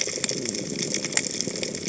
{"label": "biophony", "recorder": "HydroMoth"}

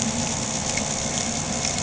{"label": "anthrophony, boat engine", "recorder": "HydroMoth"}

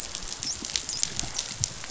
{"label": "biophony, dolphin", "recorder": "SoundTrap 500"}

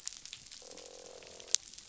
{"label": "biophony, croak", "recorder": "SoundTrap 500"}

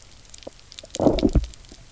{"label": "biophony, low growl", "recorder": "SoundTrap 300"}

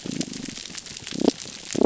{"label": "biophony", "recorder": "SoundTrap 300"}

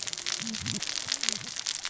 {"label": "biophony, cascading saw", "recorder": "SoundTrap 600 or HydroMoth"}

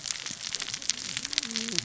{"label": "biophony, cascading saw", "recorder": "SoundTrap 600 or HydroMoth"}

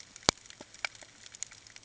{"label": "ambient", "recorder": "HydroMoth"}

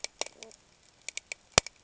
{"label": "ambient", "recorder": "HydroMoth"}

